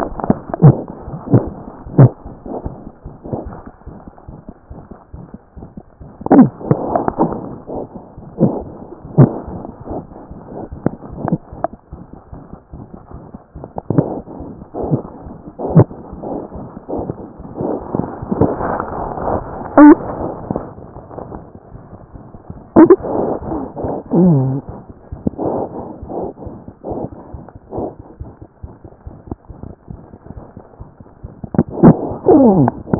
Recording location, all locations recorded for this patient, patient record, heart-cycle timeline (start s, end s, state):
aortic valve (AV)
aortic valve (AV)+mitral valve (MV)
#Age: Infant
#Sex: Female
#Height: 60.0 cm
#Weight: 7.4 kg
#Pregnancy status: False
#Murmur: Present
#Murmur locations: aortic valve (AV)+mitral valve (MV)
#Most audible location: aortic valve (AV)
#Systolic murmur timing: Early-systolic
#Systolic murmur shape: Plateau
#Systolic murmur grading: I/VI
#Systolic murmur pitch: Medium
#Systolic murmur quality: Harsh
#Diastolic murmur timing: nan
#Diastolic murmur shape: nan
#Diastolic murmur grading: nan
#Diastolic murmur pitch: nan
#Diastolic murmur quality: nan
#Outcome: Abnormal
#Campaign: 2014 screening campaign
0.00	28.17	unannotated
28.17	28.20	diastole
28.20	28.27	S1
28.27	28.41	systole
28.41	28.46	S2
28.46	28.63	diastole
28.63	28.69	S1
28.69	28.84	systole
28.84	28.90	S2
28.90	29.08	diastole
29.08	29.16	S1
29.16	29.31	systole
29.31	29.38	S2
29.38	29.49	diastole
29.49	29.55	S1
29.55	29.66	systole
29.66	29.72	S2
29.72	29.90	diastole
29.90	29.95	S1
29.95	30.13	systole
30.13	30.18	S2
30.18	30.37	diastole
30.37	30.43	S1
30.43	30.56	systole
30.56	30.62	S2
30.62	30.81	diastole
30.81	32.99	unannotated